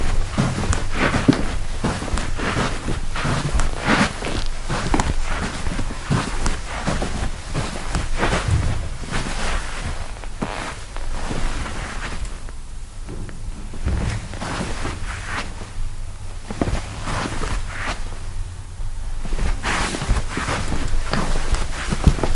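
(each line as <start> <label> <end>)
0.0 Loud, frequent footsteps shuffling on carpet. 12.9
13.0 Loud, rare shuffling footsteps on carpet. 19.3
19.4 Loud, frequent footsteps shuffling on carpet. 22.4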